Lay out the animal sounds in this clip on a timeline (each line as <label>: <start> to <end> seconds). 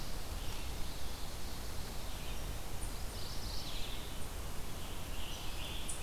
Mourning Warbler (Geothlypis philadelphia): 0.0 to 0.5 seconds
Red-eyed Vireo (Vireo olivaceus): 0.0 to 6.0 seconds
Mourning Warbler (Geothlypis philadelphia): 2.9 to 4.3 seconds
Scarlet Tanager (Piranga olivacea): 4.6 to 6.0 seconds